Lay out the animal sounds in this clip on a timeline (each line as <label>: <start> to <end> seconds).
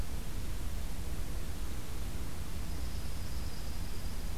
Dark-eyed Junco (Junco hyemalis): 2.6 to 4.4 seconds